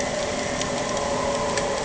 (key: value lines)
label: anthrophony, boat engine
recorder: HydroMoth